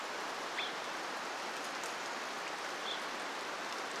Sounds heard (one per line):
rain
Evening Grosbeak call